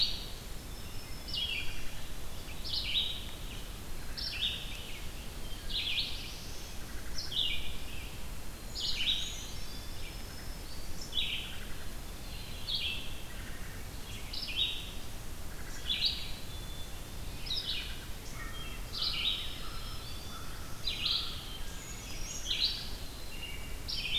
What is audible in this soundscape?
Indigo Bunting, Red-eyed Vireo, Black-throated Green Warbler, Wood Thrush, Black-throated Blue Warbler, Brown Creeper, Black-capped Chickadee, American Crow, American Robin